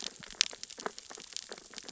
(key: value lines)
label: biophony, sea urchins (Echinidae)
recorder: SoundTrap 600 or HydroMoth